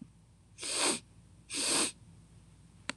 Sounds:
Sniff